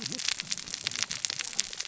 {"label": "biophony, cascading saw", "recorder": "SoundTrap 600 or HydroMoth"}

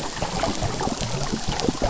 {"label": "anthrophony, boat engine", "recorder": "SoundTrap 300"}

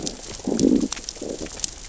{"label": "biophony, growl", "recorder": "SoundTrap 600 or HydroMoth"}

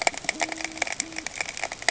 {"label": "ambient", "recorder": "HydroMoth"}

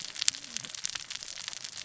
{"label": "biophony, cascading saw", "recorder": "SoundTrap 600 or HydroMoth"}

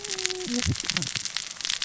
{"label": "biophony, cascading saw", "recorder": "SoundTrap 600 or HydroMoth"}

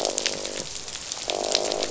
{"label": "biophony, croak", "recorder": "SoundTrap 500"}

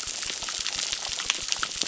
{"label": "biophony, crackle", "recorder": "SoundTrap 600"}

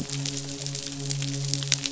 {"label": "biophony, midshipman", "recorder": "SoundTrap 500"}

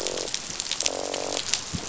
{"label": "biophony, croak", "recorder": "SoundTrap 500"}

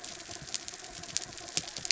{"label": "anthrophony, mechanical", "recorder": "SoundTrap 300"}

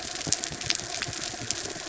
{"label": "anthrophony, boat engine", "recorder": "SoundTrap 300"}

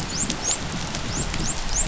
{"label": "biophony, dolphin", "recorder": "SoundTrap 500"}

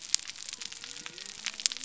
{"label": "biophony", "recorder": "SoundTrap 300"}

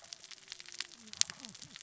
{"label": "biophony, cascading saw", "recorder": "SoundTrap 600 or HydroMoth"}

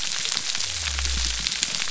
{"label": "biophony", "recorder": "SoundTrap 300"}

